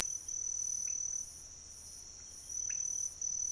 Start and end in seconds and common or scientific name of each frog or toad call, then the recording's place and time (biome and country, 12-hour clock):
0.8	1.0	pointedbelly frog
2.6	2.9	pointedbelly frog
Cerrado, Brazil, 4:30am